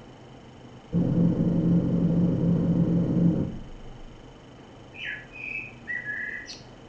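First, an engine is heard. Then you can hear a bird. A constant noise runs about 20 decibels below the sounds.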